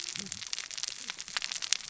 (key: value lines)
label: biophony, cascading saw
recorder: SoundTrap 600 or HydroMoth